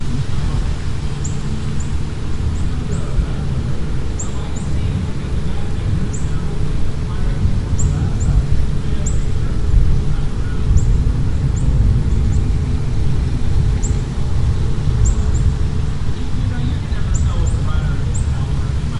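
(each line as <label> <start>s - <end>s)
Natural ambient sounds. 0.0s - 19.0s
Birds chirping in the distance. 1.2s - 12.9s
A person is speaking muffled. 2.8s - 19.0s
Birds chirping in the distance. 15.0s - 19.0s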